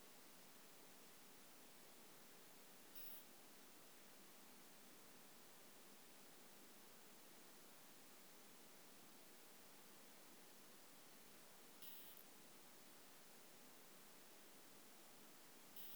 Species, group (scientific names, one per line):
Isophya modestior
Orthoptera